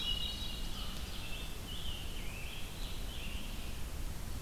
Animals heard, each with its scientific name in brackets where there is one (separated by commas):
Hermit Thrush (Catharus guttatus), Scarlet Tanager (Piranga olivacea), Ovenbird (Seiurus aurocapilla), Red-eyed Vireo (Vireo olivaceus)